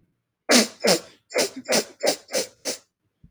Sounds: Sniff